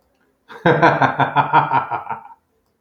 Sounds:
Laughter